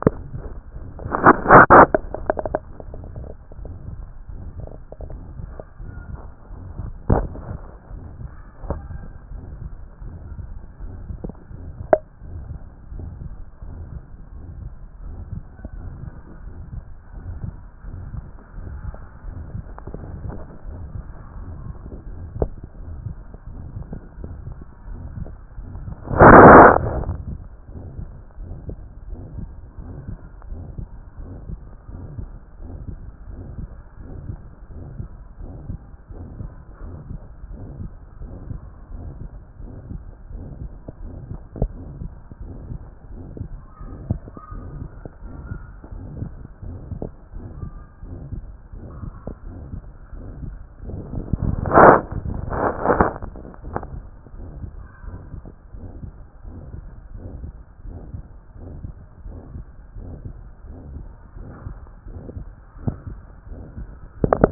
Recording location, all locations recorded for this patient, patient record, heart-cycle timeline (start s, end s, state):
aortic valve (AV)
aortic valve (AV)+pulmonary valve (PV)+tricuspid valve (TV)+mitral valve (MV)+other location
#Age: nan
#Sex: Male
#Height: 163.0 cm
#Weight: 73.0 kg
#Pregnancy status: False
#Murmur: Present
#Murmur locations: aortic valve (AV)+mitral valve (MV)+pulmonary valve (PV)+other location+tricuspid valve (TV)
#Most audible location: mitral valve (MV)
#Systolic murmur timing: Holosystolic
#Systolic murmur shape: Decrescendo
#Systolic murmur grading: III/VI or higher
#Systolic murmur pitch: Medium
#Systolic murmur quality: Harsh
#Diastolic murmur timing: nan
#Diastolic murmur shape: nan
#Diastolic murmur grading: nan
#Diastolic murmur pitch: nan
#Diastolic murmur quality: nan
#Outcome: Abnormal
#Campaign: 2014 screening campaign
0.00	0.06	systole
0.06	0.12	S2
0.12	0.34	diastole
0.34	0.42	S1
0.42	0.52	systole
0.52	0.60	S2
0.60	0.86	diastole
0.86	0.88	S1
0.88	1.02	systole
1.02	1.30	S2
1.30	1.32	diastole
1.32	1.34	S1
1.34	1.44	systole
1.44	1.58	S2
1.58	1.60	diastole
1.60	1.62	S1
1.62	1.68	systole
1.68	1.90	S2
1.90	2.24	diastole
2.24	2.36	S1
2.36	2.50	systole
2.50	2.60	S2
2.60	2.90	diastole
2.90	3.02	S1
3.02	3.18	systole
3.18	3.28	S2
3.28	3.60	diastole
3.60	3.72	S1
3.72	3.88	systole
3.88	4.02	S2
4.02	4.32	diastole
4.32	4.42	S1
4.42	4.58	systole
4.58	4.68	S2
4.68	5.08	diastole
5.08	5.20	S1
5.20	5.38	systole
5.38	5.50	S2
5.50	5.82	diastole
5.82	5.92	S1
5.92	6.10	systole
6.10	6.20	S2
6.20	6.54	diastole
6.54	6.64	S1
6.64	6.80	systole
6.80	6.84	S2
6.84	7.12	diastole
7.12	7.34	S1
7.34	7.48	systole
7.48	7.58	S2
7.58	7.92	diastole
7.92	8.02	S1
8.02	8.20	systole
8.20	8.30	S2
8.30	8.66	diastole
8.66	8.82	S1
8.82	8.92	systole
8.92	9.02	S2
9.02	9.32	diastole
9.32	9.44	S1
9.44	9.62	systole
9.62	9.70	S2
9.70	10.04	diastole
10.04	10.14	S1
10.14	10.32	systole
10.32	10.46	S2
10.46	10.82	diastole
10.82	10.94	S1
10.94	11.24	systole
11.24	11.32	S2
11.32	11.60	diastole
11.60	11.72	S1
11.72	11.90	systole
11.90	12.00	S2
12.00	12.30	diastole
12.30	12.44	S1
12.44	12.50	systole
12.50	12.58	S2
12.58	12.94	diastole
12.94	13.10	S1
13.10	13.22	systole
13.22	13.34	S2
13.34	13.68	diastole
13.68	13.84	S1
13.84	13.94	systole
13.94	14.04	S2
14.04	14.34	diastole
14.34	14.44	S1
14.44	14.60	systole
14.60	14.70	S2
14.70	15.04	diastole
15.04	15.16	S1
15.16	15.32	systole
15.32	15.42	S2
15.42	15.76	diastole
15.76	15.90	S1
15.90	16.04	systole
16.04	16.14	S2
16.14	16.44	diastole
16.44	16.54	S1
16.54	16.72	systole
16.72	16.82	S2
16.82	17.20	diastole
17.20	17.38	S1
17.38	17.44	systole
17.44	17.56	S2
17.56	17.88	diastole
17.88	18.00	S1
18.00	18.14	systole
18.14	18.24	S2
18.24	18.58	diastole
18.58	18.78	S1
18.78	18.86	systole
18.86	18.92	S2
18.92	19.26	diastole
19.26	19.38	S1
19.38	19.54	systole
19.54	19.64	S2
19.64	19.94	diastole
19.94	20.04	S1
20.04	20.24	systole
20.24	20.32	S2
20.32	20.68	diastole
20.68	20.80	S1
20.80	20.94	systole
20.94	21.04	S2
21.04	21.38	diastole
21.38	21.50	S1
21.50	21.66	systole
21.66	21.74	S2
21.74	22.14	diastole
22.14	22.28	S1
22.28	22.40	systole
22.40	22.50	S2
22.50	22.88	diastole
22.88	22.96	S1
22.96	23.06	systole
23.06	23.18	S2
23.18	23.74	diastole
23.74	23.84	S1
23.84	23.92	systole
23.92	24.00	S2
24.00	24.20	diastole
24.20	24.34	S1
24.34	24.46	systole
24.46	24.56	S2
24.56	24.88	diastole
24.88	25.00	S1
25.00	25.18	systole
25.18	25.28	S2
25.28	25.80	diastole
25.80	25.94	S1
25.94	26.08	systole
26.08	26.28	S2
26.28	26.64	diastole
26.64	27.16	S1
27.16	27.28	systole
27.28	27.40	S2
27.40	27.76	diastole
27.76	27.84	S1
27.84	27.98	systole
27.98	28.10	S2
28.10	28.40	diastole
28.40	28.52	S1
28.52	28.66	systole
28.66	28.76	S2
28.76	29.08	diastole
29.08	29.20	S1
29.20	29.36	systole
29.36	29.48	S2
29.48	29.80	diastole
29.80	29.94	S1
29.94	30.08	systole
30.08	30.16	S2
30.16	30.50	diastole
30.50	30.62	S1
30.62	30.78	systole
30.78	30.88	S2
30.88	31.20	diastole
31.20	31.32	S1
31.32	31.48	systole
31.48	31.58	S2
31.58	31.94	diastole
31.94	32.04	S1
32.04	32.18	systole
32.18	32.30	S2
32.30	32.62	diastole
32.62	32.74	S1
32.74	32.88	systole
32.88	32.96	S2
32.96	33.30	diastole
33.30	33.42	S1
33.42	33.58	systole
33.58	33.68	S2
33.68	34.06	diastole
34.06	34.14	S1
34.14	34.28	systole
34.28	34.38	S2
34.38	34.76	diastole
34.76	34.86	S1
34.86	34.98	systole
34.98	35.08	S2
35.08	35.40	diastole
35.40	35.52	S1
35.52	35.68	systole
35.68	35.80	S2
35.80	36.14	diastole
36.14	36.26	S1
36.26	36.40	systole
36.40	36.50	S2
36.50	36.82	diastole
36.82	36.94	S1
36.94	37.10	systole
37.10	37.20	S2
37.20	37.50	diastole
37.50	37.60	S1
37.60	37.80	systole
37.80	37.90	S2
37.90	38.22	diastole
38.22	38.32	S1
38.32	38.48	systole
38.48	38.60	S2
38.60	38.94	diastole
38.94	39.12	S1
39.12	39.24	systole
39.24	39.32	S2
39.32	39.62	diastole
39.62	39.72	S1
39.72	39.90	systole
39.90	40.00	S2
40.00	40.32	diastole
40.32	40.44	S1
40.44	40.60	systole
40.60	40.72	S2
40.72	41.12	diastole
41.12	41.14	S1
41.14	41.30	systole
41.30	41.40	S2
41.40	41.58	diastole
41.58	41.76	S1
41.76	42.00	systole
42.00	42.08	S2
42.08	42.42	diastole
42.42	42.54	S1
42.54	42.68	systole
42.68	42.80	S2
42.80	43.12	diastole
43.12	43.24	S1
43.24	43.40	systole
43.40	43.48	S2
43.48	43.82	diastole
43.82	43.96	S1
43.96	44.08	systole
44.08	44.20	S2
44.20	44.52	diastole
44.52	44.64	S1
44.64	44.78	systole
44.78	44.88	S2
44.88	45.24	diastole
45.24	45.36	S1
45.36	45.50	systole
45.50	45.58	S2
45.58	45.94	diastole
45.94	46.06	S1
46.06	46.18	systole
46.18	46.30	S2
46.30	46.66	diastole
46.66	46.78	S1
46.78	46.98	systole
46.98	47.08	S2
47.08	47.36	diastole
47.36	47.48	S1
47.48	47.62	systole
47.62	47.72	S2
47.72	48.08	diastole
48.08	48.20	S1
48.20	48.32	systole
48.32	48.44	S2
48.44	49.02	diastole
49.02	49.12	S1
49.12	49.26	systole
49.26	49.30	S2
49.30	49.46	diastole
49.46	49.58	S1
49.58	49.72	systole
49.72	49.80	S2
49.80	50.16	diastole
50.16	50.26	S1
50.26	50.44	systole
50.44	50.56	S2
50.56	50.86	diastole
50.86	51.00	S1
51.00	51.14	systole
51.14	51.26	S2
51.26	51.54	diastole
51.54	51.60	S1
51.60	51.62	systole
51.62	51.86	S2
51.86	51.96	diastole
51.96	51.98	S1
51.98	52.14	systole
52.14	52.20	S2
52.20	52.38	diastole
52.38	52.40	S1
52.40	52.48	systole
52.48	52.66	S2
52.66	52.68	diastole
52.68	52.70	S1
52.70	52.84	systole
52.84	52.92	S2
52.92	52.94	diastole
52.94	53.08	S1
53.08	53.22	systole
53.22	53.32	S2
53.32	53.66	diastole
53.66	53.80	S1
53.80	53.94	systole
53.94	54.04	S2
54.04	54.58	diastole
54.58	54.68	S1
54.68	54.78	systole
54.78	54.84	S2
54.84	55.06	diastole
55.06	55.18	S1
55.18	55.34	systole
55.34	55.44	S2
55.44	55.76	diastole
55.76	55.90	S1
55.90	56.02	systole
56.02	56.12	S2
56.12	56.46	diastole
56.46	56.58	S1
56.58	56.74	systole
56.74	56.84	S2
56.84	57.16	diastole
57.16	57.30	S1
57.30	57.42	systole
57.42	57.52	S2
57.52	57.86	diastole
57.86	57.98	S1
57.98	58.12	systole
58.12	58.24	S2
58.24	58.62	diastole
58.62	58.76	S1
58.76	58.84	systole
58.84	58.92	S2
58.92	59.26	diastole
59.26	59.38	S1
59.38	59.54	systole
59.54	59.64	S2
59.64	59.98	diastole
59.98	60.12	S1
60.12	60.26	systole
60.26	60.36	S2
60.36	60.76	diastole
60.76	60.78	S1
60.78	60.94	systole
60.94	61.06	S2
61.06	61.38	diastole
61.38	61.50	S1
61.50	61.66	systole
61.66	61.78	S2
61.78	62.08	diastole
62.08	62.20	S1
62.20	62.36	systole
62.36	62.48	S2
62.48	62.84	diastole
62.84	62.96	S1
62.96	63.10	systole
63.10	63.20	S2
63.20	63.50	diastole
63.50	63.62	S1
63.62	63.78	systole
63.78	63.88	S2
63.88	64.24	diastole
64.24	64.46	S1
64.46	64.48	systole
64.48	64.51	S2